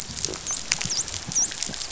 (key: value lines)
label: biophony, dolphin
recorder: SoundTrap 500